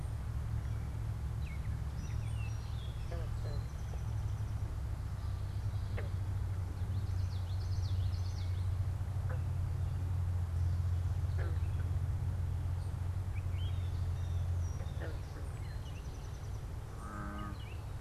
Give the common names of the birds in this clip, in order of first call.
Gray Catbird, Song Sparrow, Common Yellowthroat, Blue Jay, unidentified bird